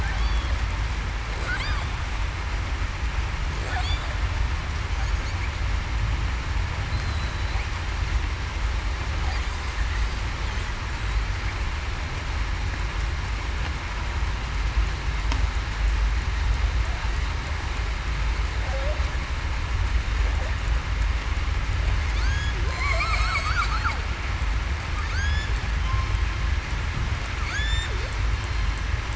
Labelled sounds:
7.1	7.6	killer whale, southern resident, 3.9 to 4.0 kHz
22.7	23.6	killer whale, southern resident, 1.9 to 8.0 kHz
25.1	25.5	killer whale, southern resident, 1.3 to 5.2 kHz
27.5	27.9	killer whale, southern resident, 1.3 to 1.9 kHz

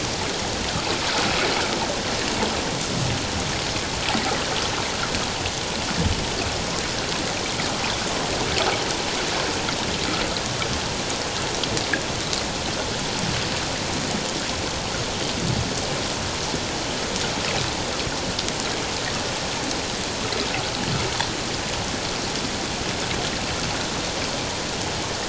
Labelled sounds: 1.1	1.3	water noise, 1.2 to 1.6 kHz

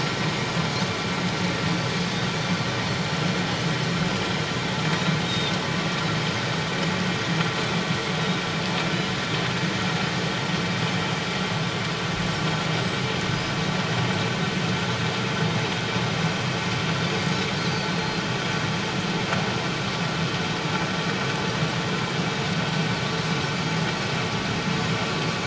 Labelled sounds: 5.2	5.5	Pacific white-sided dolphin, 3.5 to 3.8 kHz
17.9	18.2	Pacific white-sided dolphin, 4.0 to 4.3 kHz

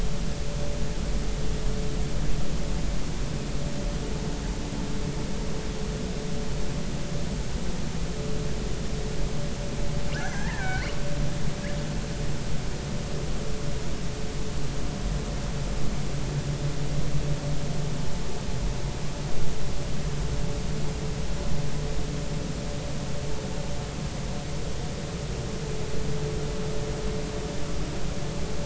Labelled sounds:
10.1	10.9	killer whale, northern resident, R clan, call N33, 1.3 to 6.2 kHz

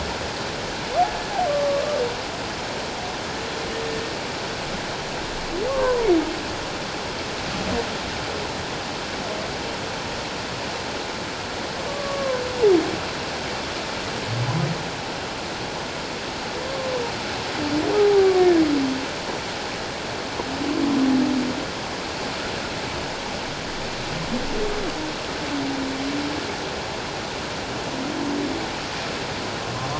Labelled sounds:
1.5	1.8	humpback whale, 1.1 to 1.2 kHz
5.7	6.1	humpback whale, 0.91 to 1.2 kHz
11.9	12.4	humpback whale, 1.0 to 1.2 kHz
18.0	18.6	humpback whale, 0.78 to 1.8 kHz

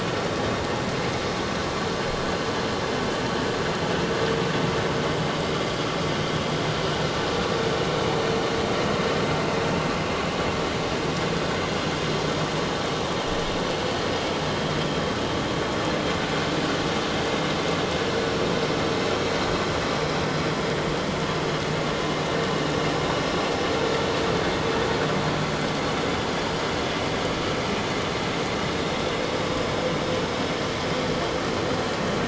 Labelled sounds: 28.6	29.0	vessel noise, 3.7 to 3.8 kHz

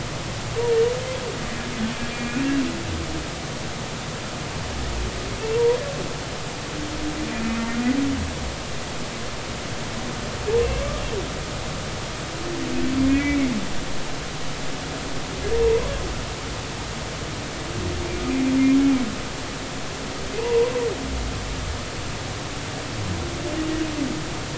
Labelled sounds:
2.1	2.4	humpback whale, 2.3 to 2.6 kHz
7.3	7.6	humpback whale, 2.4 to 2.5 kHz
13.0	13.5	humpback whale, 1.9 to 2.4 kHz
15.6	15.9	humpback whale, 0.86 to 1.1 kHz
20.4	20.7	humpback whale, 0.86 to 1.1 kHz

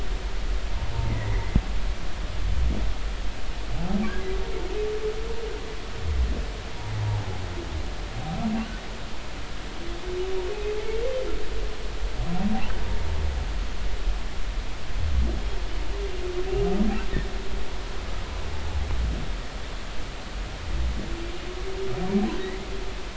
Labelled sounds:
1.1	1.6	humpback whale, 1.7 to 2.2 kHz
22.4	22.7	humpback whale, 1.8 to 2.2 kHz

